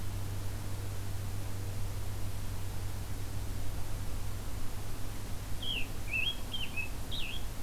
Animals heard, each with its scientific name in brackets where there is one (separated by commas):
Scarlet Tanager (Piranga olivacea)